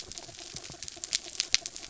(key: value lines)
label: anthrophony, mechanical
recorder: SoundTrap 300